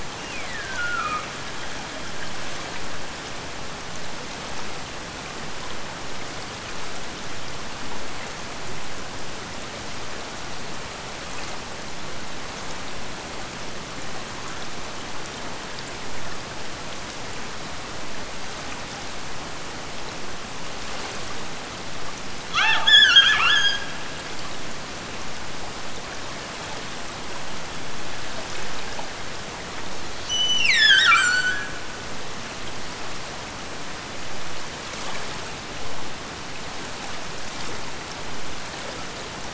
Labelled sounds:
0.0	1.4	killer whale, Bigg's (transient), Gulf of Alaska transient, 1.0 to 3.1 kHz
22.4	24.1	killer whale, Bigg's (transient), Gulf of Alaska transient, 0.41 to 8.0 kHz
30.2	32.0	killer whale, Bigg's (transient), Gulf of Alaska transient, 1.1 to 8.0 kHz

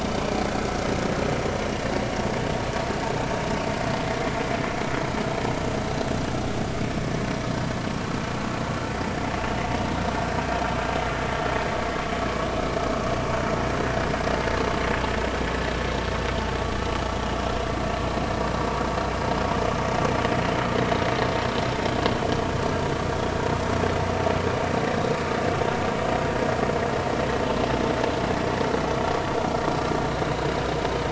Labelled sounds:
9.4	9.6	vessel noise, 2.6 to 2.9 kHz

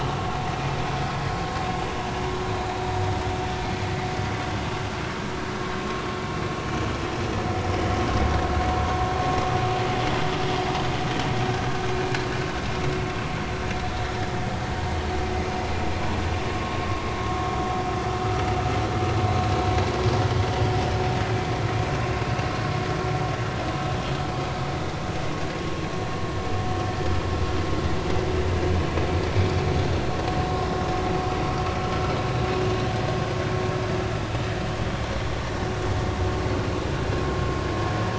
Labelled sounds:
6.8	7.0	vessel noise, 1.0 to 1.1 kHz
16.5	16.8	vessel noise, 0.96 to 1.2 kHz

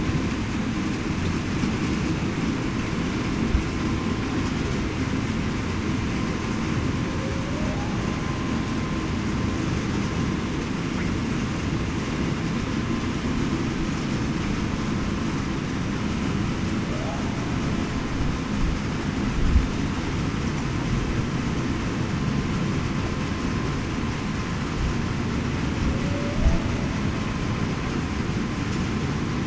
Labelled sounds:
26.0	26.7	humpback whale, 0.54 to 0.68 kHz

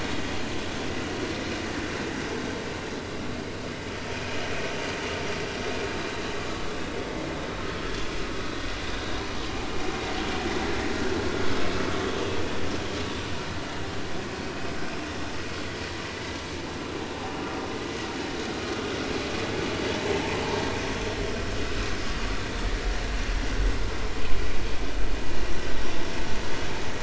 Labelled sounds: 21.6	21.9	vessel noise, 1.2 to 1.6 kHz

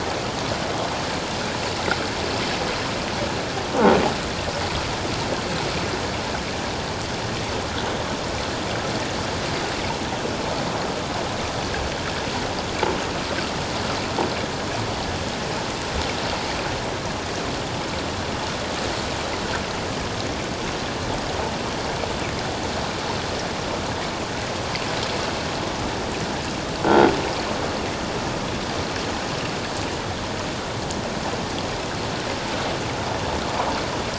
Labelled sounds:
26.9	27.2	croaking sound likely from a nearby submerged object, 3.2 to 3.3 kHz

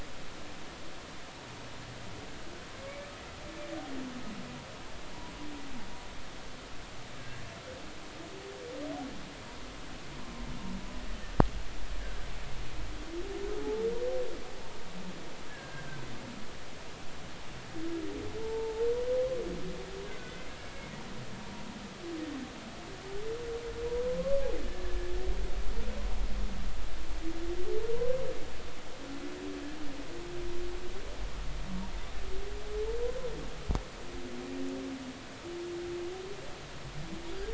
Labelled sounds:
7.2	7.4	humpback whale, 1.6 to 1.8 kHz
15.5	15.9	humpback whale, 1.5 to 1.8 kHz
18.4	18.9	humpback whale, 0.83 to 0.93 kHz
20.2	20.5	humpback whale, 2.0 to 2.2 kHz
24.1	24.4	humpback whale, 0.99 to 1.2 kHz

